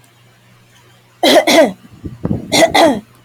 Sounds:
Cough